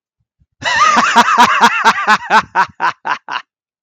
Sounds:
Laughter